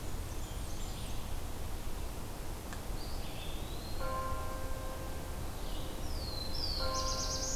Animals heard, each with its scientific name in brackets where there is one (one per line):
Black-throated Blue Warbler (Setophaga caerulescens)
Eastern Wood-Pewee (Contopus virens)
Blackburnian Warbler (Setophaga fusca)
Red-eyed Vireo (Vireo olivaceus)